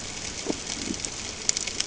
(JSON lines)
{"label": "ambient", "recorder": "HydroMoth"}